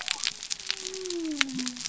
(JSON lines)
{"label": "biophony", "recorder": "SoundTrap 300"}